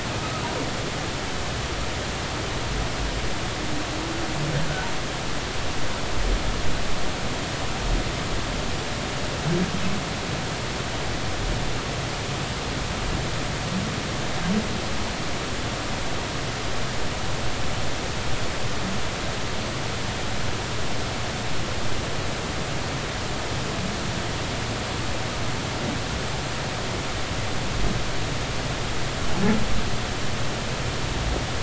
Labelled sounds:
4.6	4.9	humpback whale, 1.4 to 1.7 kHz

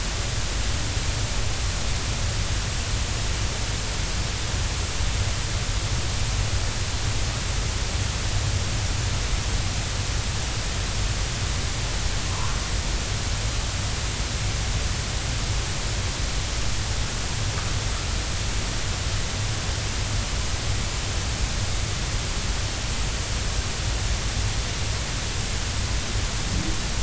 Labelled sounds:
12.3	12.6	humpback whale, 0.90 to 1.2 kHz

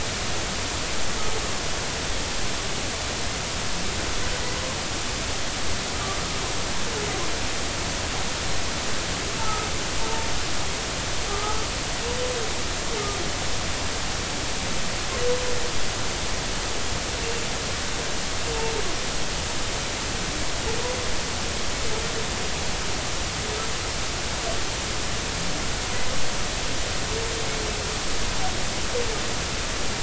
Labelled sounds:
9.4	10.3	humpback whale, 0.86 to 1.4 kHz
11.3	11.6	humpback whale, 1.2 to 1.3 kHz

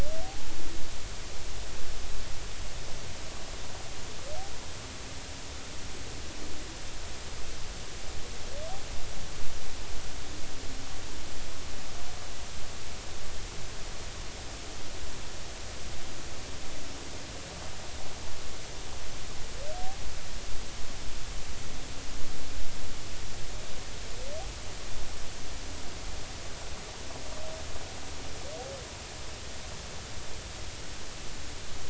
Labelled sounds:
0.2	0.5	humpback whale, 0.80 to 0.93 kHz

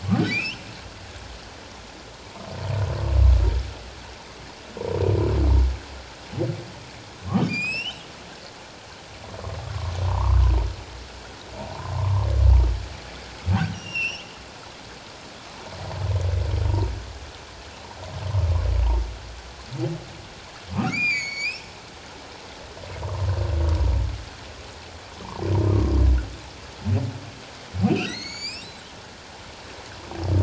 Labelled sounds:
0.3	0.7	humpback whale, 2.2 to 3.2 kHz
7.5	8.1	humpback whale, 2.3 to 7.9 kHz
9.6	10.4	humpback whale, 0.81 to 1.3 kHz
11.6	12.3	humpback whale, 0.78 to 1.2 kHz
13.7	14.3	humpback whale, 2.4 to 5.9 kHz
20.7	21.7	humpback whale, 1.2 to 7.3 kHz
23.0	23.3	humpback whale, 0.88 to 1.2 kHz
27.9	28.7	humpback whale, 1.8 to 8.0 kHz

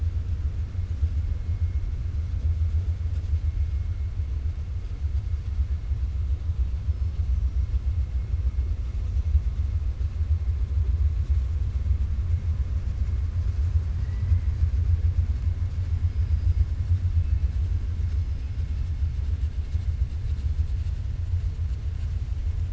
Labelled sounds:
13.9	14.5	killer whale, 0.95 to 2.9 kHz

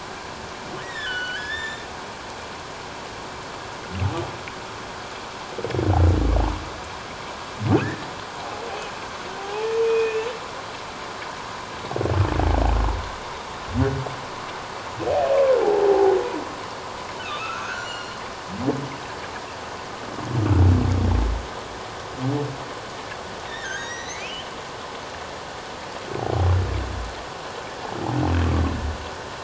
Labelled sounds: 0.8	1.9	humpback whale, 1.4 to 7.3 kHz
7.7	8.1	humpback whale, 1.4 to 1.9 kHz
9.4	10.3	humpback whale, 0.78 to 2.6 kHz
15.6	16.1	humpback whale, 0.78 to 0.94 kHz
17.2	18.2	humpback whale, 1.1 to 7.3 kHz
23.5	24.5	humpback whale, 1.4 to 6.6 kHz

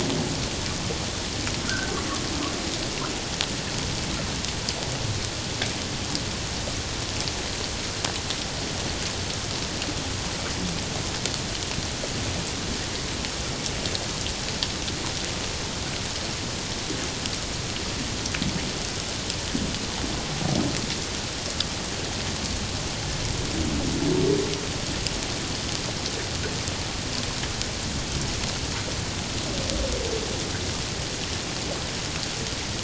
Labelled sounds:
1.6	1.9	humpback whale, 1.3 to 1.6 kHz

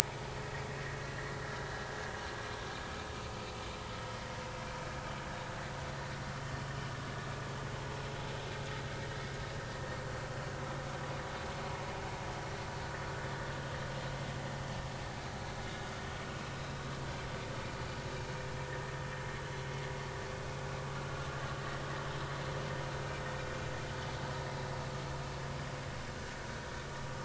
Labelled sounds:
16.6	16.9	vessel noise, 3.8 to 4.1 kHz

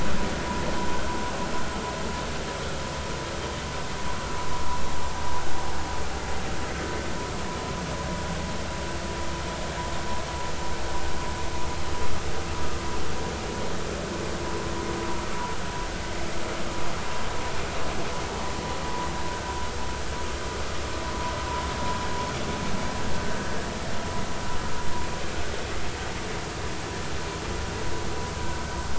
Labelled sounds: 28.4	28.6	vessel noise, 1.4 to 1.6 kHz

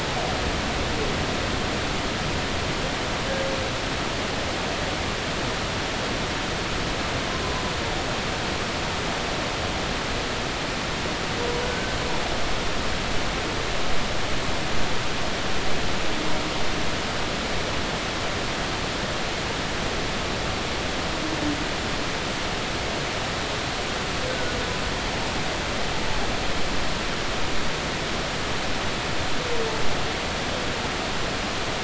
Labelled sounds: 11.6	12.0	humpback whale, 1.4 to 1.6 kHz
24.3	24.5	humpback whale, 1.4 to 1.6 kHz

